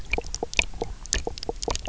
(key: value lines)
label: biophony, knock croak
recorder: SoundTrap 300